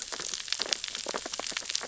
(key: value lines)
label: biophony, sea urchins (Echinidae)
recorder: SoundTrap 600 or HydroMoth